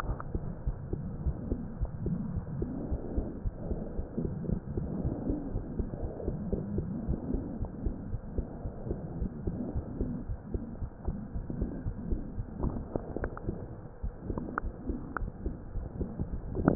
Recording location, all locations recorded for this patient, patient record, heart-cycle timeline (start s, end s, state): aortic valve (AV)
aortic valve (AV)+pulmonary valve (PV)+tricuspid valve (TV)+mitral valve (MV)
#Age: Child
#Sex: Female
#Height: 103.0 cm
#Weight: 18.1 kg
#Pregnancy status: False
#Murmur: Absent
#Murmur locations: nan
#Most audible location: nan
#Systolic murmur timing: nan
#Systolic murmur shape: nan
#Systolic murmur grading: nan
#Systolic murmur pitch: nan
#Systolic murmur quality: nan
#Diastolic murmur timing: nan
#Diastolic murmur shape: nan
#Diastolic murmur grading: nan
#Diastolic murmur pitch: nan
#Diastolic murmur quality: nan
#Outcome: Normal
#Campaign: 2015 screening campaign
0.00	0.42	unannotated
0.42	0.62	diastole
0.62	0.76	S1
0.76	0.90	systole
0.90	1.04	S2
1.04	1.20	diastole
1.20	1.34	S1
1.34	1.48	systole
1.48	1.62	S2
1.62	1.78	diastole
1.78	1.88	S1
1.88	2.02	systole
2.02	2.20	S2
2.20	2.32	diastole
2.32	2.44	S1
2.44	2.58	systole
2.58	2.72	S2
2.72	2.88	diastole
2.88	2.98	S1
2.98	3.14	systole
3.14	3.28	S2
3.28	3.42	diastole
3.42	3.52	S1
3.52	3.68	systole
3.68	3.82	S2
3.82	3.96	diastole
3.96	4.04	S1
4.04	4.22	systole
4.22	4.36	S2
4.36	4.44	diastole
4.44	4.58	S1
4.58	4.74	systole
4.74	4.90	S2
4.90	5.04	diastole
5.04	5.16	S1
5.16	5.28	systole
5.28	5.39	S2
5.39	5.51	diastole
5.51	5.62	S1
5.62	5.76	systole
5.76	5.90	S2
5.90	6.00	diastole
6.00	6.12	S1
6.12	6.26	systole
6.26	6.36	S2
6.36	6.46	diastole
6.46	6.60	S1
6.60	6.74	systole
6.74	6.90	S2
6.90	7.04	diastole
7.04	7.18	S1
7.18	7.32	systole
7.32	7.43	S2
7.43	7.56	diastole
7.56	7.68	S1
7.68	7.84	systole
7.84	7.98	S2
7.98	8.08	diastole
8.08	8.20	S1
8.20	8.34	systole
8.34	8.48	S2
8.48	8.62	diastole
8.62	8.72	S1
8.72	8.87	systole
8.87	8.98	S2
8.98	9.16	diastole
9.16	9.30	S1
9.30	9.44	systole
9.44	9.58	S2
9.58	9.72	diastole
9.72	9.84	S1
9.84	9.98	systole
9.98	10.10	S2
10.10	10.25	diastole
10.25	10.38	S1
10.38	10.52	systole
10.52	10.62	S2
10.62	10.78	diastole
10.78	10.88	S1
10.88	11.06	systole
11.06	11.17	S2
11.17	11.33	diastole
11.33	11.45	S1
11.45	11.58	systole
11.58	11.69	S2
11.69	11.83	diastole
11.83	11.94	S1
11.94	12.09	systole
12.09	12.20	S2
12.20	12.36	diastole
12.36	12.46	S1
12.46	12.62	systole
12.62	16.75	unannotated